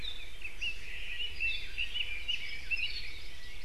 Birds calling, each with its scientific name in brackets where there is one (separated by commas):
Apapane (Himatione sanguinea), Red-billed Leiothrix (Leiothrix lutea)